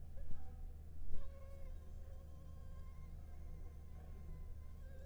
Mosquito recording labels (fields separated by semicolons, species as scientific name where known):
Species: Anopheles arabiensis; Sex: female; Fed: unfed; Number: one; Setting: cup